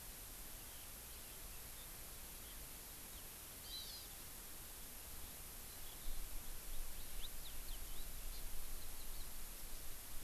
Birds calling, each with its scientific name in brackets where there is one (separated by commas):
Hawaii Amakihi (Chlorodrepanis virens), Eurasian Skylark (Alauda arvensis)